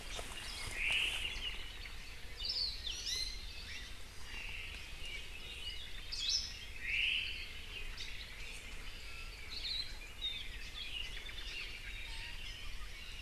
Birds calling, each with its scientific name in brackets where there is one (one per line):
Omao (Myadestes obscurus)
Hawaii Akepa (Loxops coccineus)
Red-billed Leiothrix (Leiothrix lutea)
Iiwi (Drepanis coccinea)
Hawaii Creeper (Loxops mana)
Hawaii Amakihi (Chlorodrepanis virens)